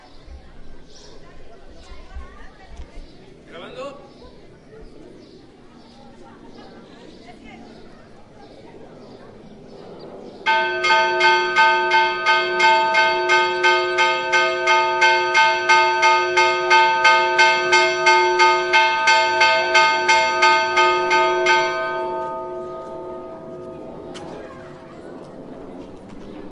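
People talking faintly and birds chirping in a quiet outdoor environment. 0.0 - 10.4
A rapid, rhythmic, and very loud bell ringing repeatedly in quick succession. 10.5 - 22.3
A bell toll fades gradually while birds chirp and people move about in the background. 22.3 - 26.5

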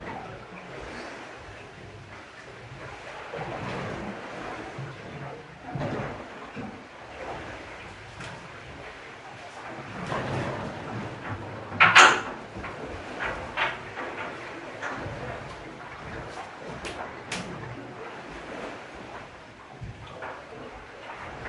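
Water sloshing and bubbling muffledly against the hull creates a rhythmic, rolling atmosphere in the mess room below the deck. 0.2 - 21.5

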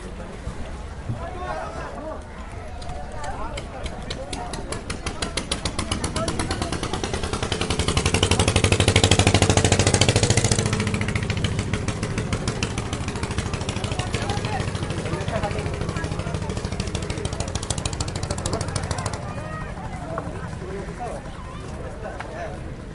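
People talking outdoors in a nearby crowd. 0.0 - 22.9
A moped engine revs repeatedly, passing nearby and fading. 5.1 - 22.9

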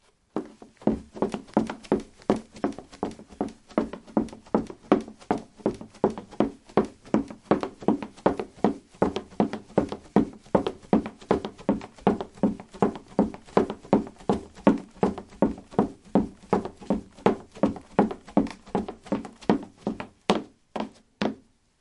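Footsteps of a person running steadily on a wooden floor. 0.3 - 21.4

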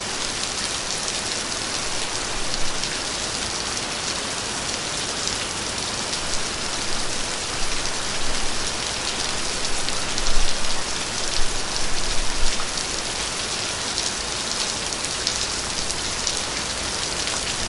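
Fine rain falling heavily on hard ground. 0.0 - 17.7

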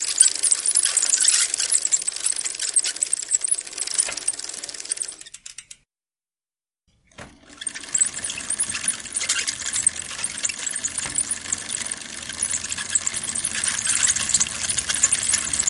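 A bicycle produces a repetitive high-pitched squeaking sound with each pedal movement. 0.0 - 5.9
A bicycle produces a repetitive high-pitched squeaking sound with each pedal movement. 7.2 - 15.7

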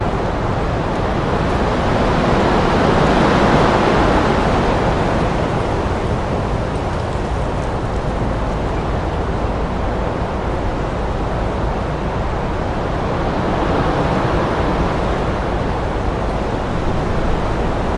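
A powerful gusty wind varies in intensity. 0.0 - 18.0

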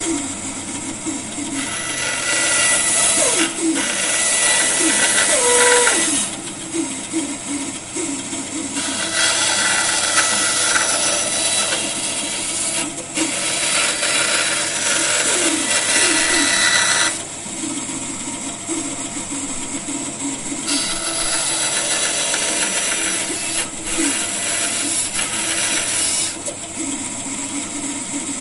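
An electric fan is running. 0.0 - 1.4
A loud electric saw cutting. 1.5 - 6.4
An electric fan is running. 6.4 - 9.0
A loud electric saw cutting. 9.1 - 17.6
An electric fan is running. 17.6 - 20.5
A loud electric saw cutting. 20.5 - 26.2
An electric fan is running. 26.3 - 28.4

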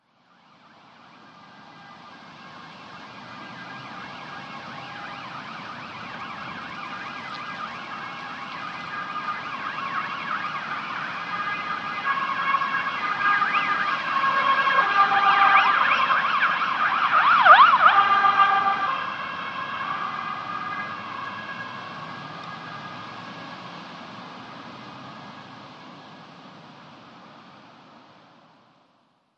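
An alarm gradually increases in volume. 0.0 - 18.2
An ambulance siren sounds repeatedly, gradually increasing in volume then fading away. 1.0 - 23.3

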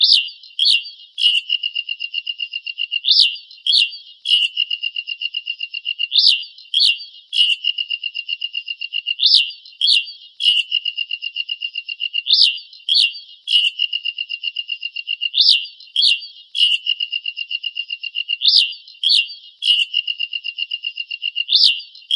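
A bird screams twice with high-pitched screams that decrease in pitch. 0.0 - 1.5
A high-pitched bird call repeats rapidly and continuously. 1.4 - 3.2
A bird screams twice with high-pitched screams that decrease in pitch. 3.1 - 4.6
A high-pitched bird call repeats rapidly and continuously. 4.5 - 6.3
A bird screams twice with high-pitched screams that decrease in pitch. 6.2 - 7.7
A high-pitched bird call repeats rapidly and continuously. 7.4 - 9.3
A bird screams twice with high-pitched screams that decrease in pitch. 9.1 - 10.6
A high-pitched bird call repeats rapidly and continuously. 10.5 - 12.4
A bird screams twice with high-pitched screams that decrease in pitch. 12.3 - 13.8
A high-pitched bird call repeats rapidly and continuously. 13.7 - 15.5
A bird screams twice with high-pitched screams that decrease in pitch. 15.4 - 16.9
A high-pitched bird call repeats rapidly and continuously. 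16.8 - 18.6
A bird screams twice with high-pitched screams that decrease in pitch. 18.4 - 19.9
A high-pitched bird call repeats rapidly and continuously. 19.8 - 21.6
A bird screams twice with high-pitched screams that decrease in pitch. 21.3 - 22.2

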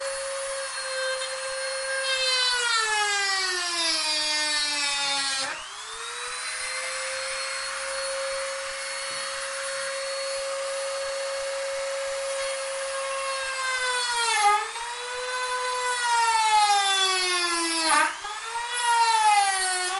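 A circular saw operates loudly with a high-pitched, steady cutting noise. 0.0 - 20.0
A circular saw is cutting, producing a loud, high-pitched grinding noise. 2.0 - 5.6
A circular saw is cutting, producing a loud, high-pitched grinding noise. 13.3 - 14.7
A circular saw is cutting, producing a loud, high-pitched grinding noise. 15.6 - 18.1
A circular saw is cutting, producing a loud, high-pitched grinding noise. 18.8 - 20.0

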